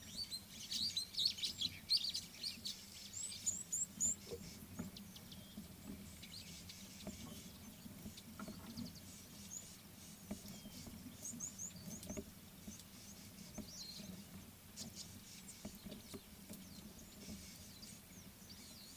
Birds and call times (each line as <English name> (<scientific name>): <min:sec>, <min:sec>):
Superb Starling (Lamprotornis superbus): 0:01.3
Red-cheeked Cordonbleu (Uraeginthus bengalus): 0:03.7, 0:11.6
Tawny-flanked Prinia (Prinia subflava): 0:14.8